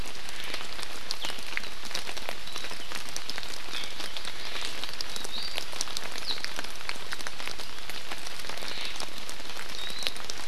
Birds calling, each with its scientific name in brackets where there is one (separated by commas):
Omao (Myadestes obscurus), Iiwi (Drepanis coccinea), Warbling White-eye (Zosterops japonicus)